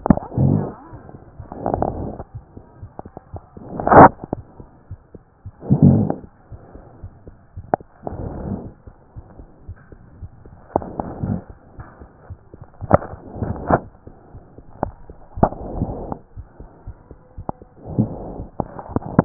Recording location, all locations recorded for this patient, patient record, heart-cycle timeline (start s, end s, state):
aortic valve (AV)
aortic valve (AV)+aortic valve (AV)+pulmonary valve (PV)+tricuspid valve (TV)+mitral valve (MV)+mitral valve (MV)
#Age: nan
#Sex: Female
#Height: nan
#Weight: nan
#Pregnancy status: True
#Murmur: Absent
#Murmur locations: nan
#Most audible location: nan
#Systolic murmur timing: nan
#Systolic murmur shape: nan
#Systolic murmur grading: nan
#Systolic murmur pitch: nan
#Systolic murmur quality: nan
#Diastolic murmur timing: nan
#Diastolic murmur shape: nan
#Diastolic murmur grading: nan
#Diastolic murmur pitch: nan
#Diastolic murmur quality: nan
#Outcome: Abnormal
#Campaign: 2014 screening campaign
0.00	8.78	unannotated
8.78	8.85	systole
8.85	8.94	S2
8.94	9.18	diastole
9.18	9.26	S1
9.26	9.40	systole
9.40	9.46	S2
9.46	9.68	diastole
9.68	9.78	S1
9.78	9.94	systole
9.94	10.02	S2
10.02	10.20	diastole
10.20	10.30	S1
10.30	10.44	systole
10.44	10.54	S2
10.54	10.76	diastole
10.76	10.86	S1
10.86	10.98	systole
10.98	11.04	S2
11.04	11.24	diastole
11.24	11.36	S1
11.36	11.50	systole
11.50	11.56	S2
11.56	11.78	diastole
11.78	11.86	S1
11.86	12.00	systole
12.00	12.10	S2
12.10	12.30	diastole
12.30	12.38	S1
12.38	12.54	systole
12.54	12.64	S2
12.64	12.81	diastole
12.81	12.84	S1
12.84	19.25	unannotated